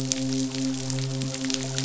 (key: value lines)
label: biophony, midshipman
recorder: SoundTrap 500